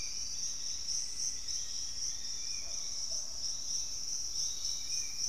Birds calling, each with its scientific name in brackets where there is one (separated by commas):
Hauxwell's Thrush (Turdus hauxwelli), Pygmy Antwren (Myrmotherula brachyura), Piratic Flycatcher (Legatus leucophaius), Spot-winged Antshrike (Pygiptila stellaris), Black-faced Antthrush (Formicarius analis)